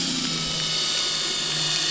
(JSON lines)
{"label": "anthrophony, boat engine", "recorder": "SoundTrap 300"}